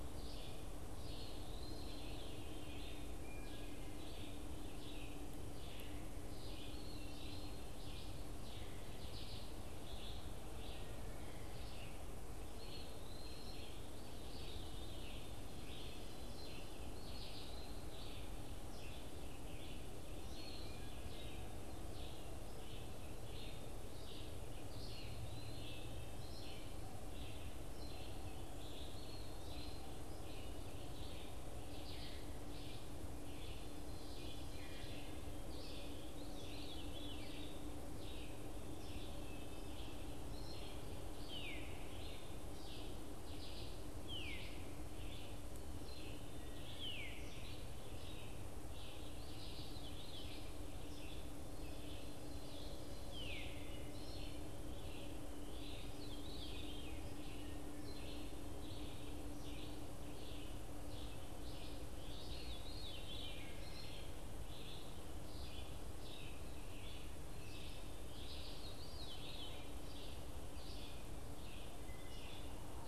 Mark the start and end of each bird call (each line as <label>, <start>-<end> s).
Red-eyed Vireo (Vireo olivaceus), 0.0-61.7 s
Eastern Wood-Pewee (Contopus virens), 0.9-2.2 s
Eastern Wood-Pewee (Contopus virens), 6.6-7.7 s
Eastern Wood-Pewee (Contopus virens), 12.5-13.8 s
Veery (Catharus fuscescens), 14.0-15.4 s
Eastern Wood-Pewee (Contopus virens), 16.8-17.9 s
Eastern Wood-Pewee (Contopus virens), 20.2-21.2 s
Eastern Wood-Pewee (Contopus virens), 24.7-25.7 s
Eastern Wood-Pewee (Contopus virens), 28.8-29.9 s
Ovenbird (Seiurus aurocapilla), 33.5-35.3 s
Veery (Catharus fuscescens), 36.1-37.7 s
Veery (Catharus fuscescens), 41.1-44.6 s
Veery (Catharus fuscescens), 46.7-47.3 s
Veery (Catharus fuscescens), 49.1-50.6 s
Veery (Catharus fuscescens), 55.9-57.2 s
Veery (Catharus fuscescens), 62.0-63.6 s
Red-eyed Vireo (Vireo olivaceus), 62.0-72.9 s
Veery (Catharus fuscescens), 68.2-69.8 s